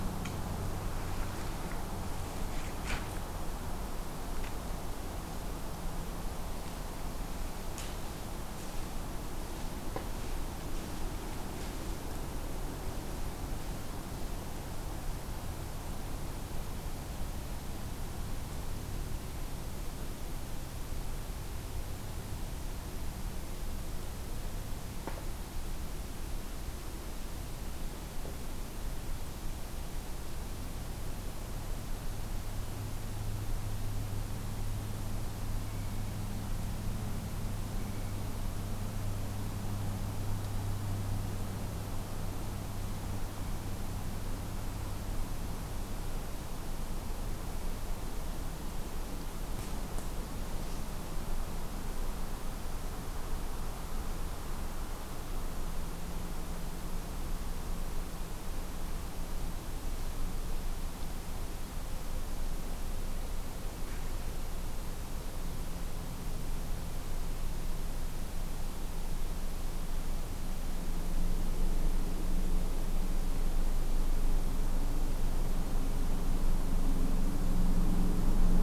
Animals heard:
forest ambience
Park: Acadia National Park